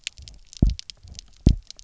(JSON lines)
{"label": "biophony, double pulse", "recorder": "SoundTrap 300"}